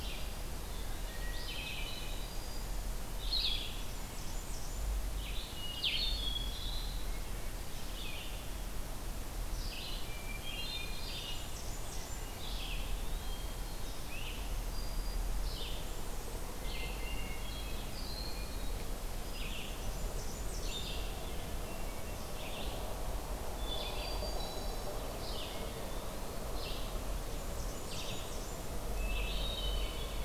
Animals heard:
Black-throated Green Warbler (Setophaga virens)
Blackburnian Warbler (Setophaga fusca)
Hermit Thrush (Catharus guttatus)
Red-eyed Vireo (Vireo olivaceus)
Eastern Wood-Pewee (Contopus virens)

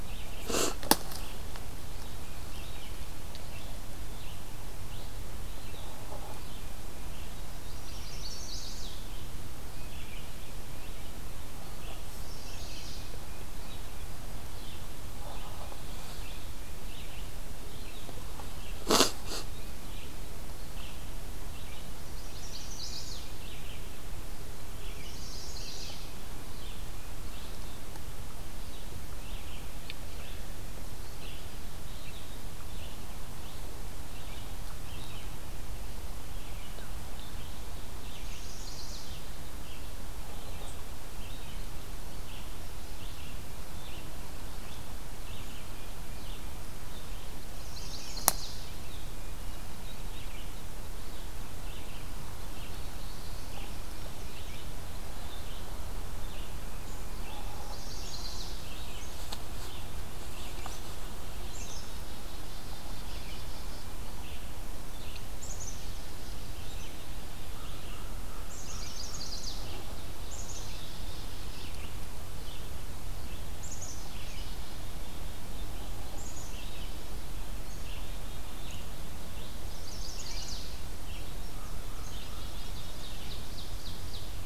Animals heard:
Red-eyed Vireo (Vireo olivaceus)
Ovenbird (Seiurus aurocapilla)
Chestnut-sided Warbler (Setophaga pensylvanica)
Indigo Bunting (Passerina cyanea)
Black-capped Chickadee (Poecile atricapillus)
American Crow (Corvus brachyrhynchos)

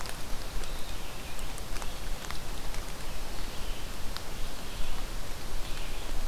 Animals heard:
Red-eyed Vireo (Vireo olivaceus)

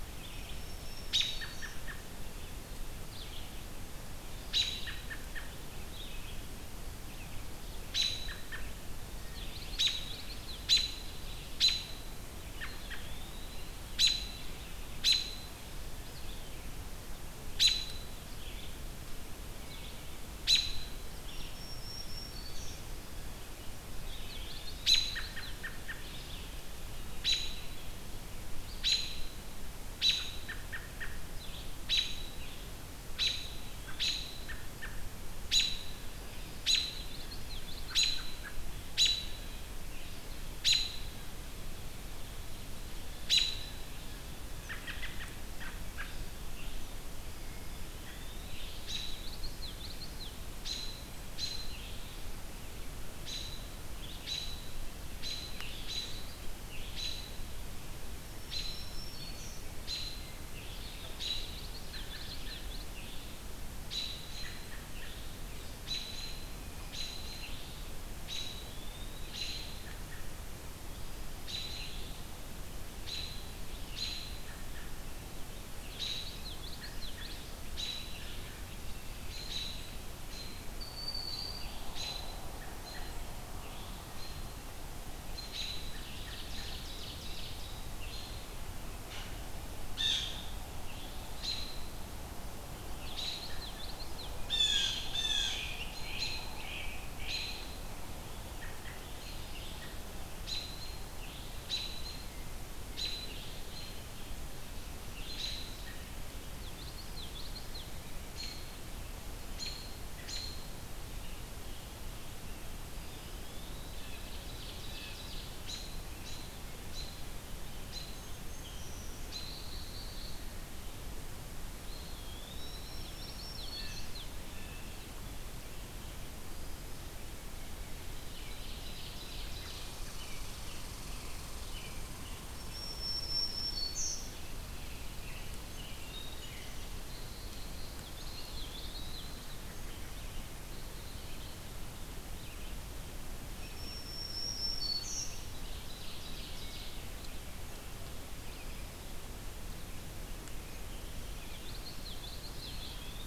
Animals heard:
Black-capped Chickadee (Poecile atricapillus)
Black-throated Green Warbler (Setophaga virens)
Eastern Wood-Pewee (Contopus virens)
Ovenbird (Seiurus aurocapilla)
Blue Jay (Cyanocitta cristata)
Great Crested Flycatcher (Myiarchus crinitus)
Red Squirrel (Tamiasciurus hudsonicus)
Red-eyed Vireo (Vireo olivaceus)
Common Yellowthroat (Geothlypis trichas)
American Robin (Turdus migratorius)

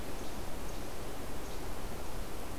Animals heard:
Least Flycatcher (Empidonax minimus)

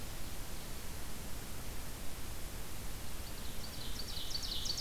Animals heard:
Ovenbird (Seiurus aurocapilla)

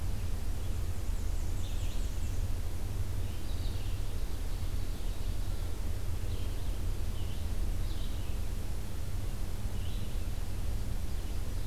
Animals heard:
Ovenbird (Seiurus aurocapilla)
Black-and-white Warbler (Mniotilta varia)
Red-eyed Vireo (Vireo olivaceus)

